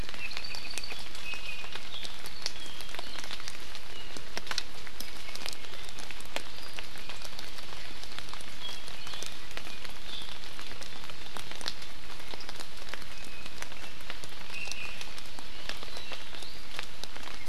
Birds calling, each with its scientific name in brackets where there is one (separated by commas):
Iiwi (Drepanis coccinea), Apapane (Himatione sanguinea)